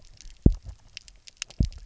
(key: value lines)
label: biophony, double pulse
recorder: SoundTrap 300